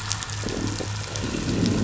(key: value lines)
label: anthrophony, boat engine
recorder: SoundTrap 500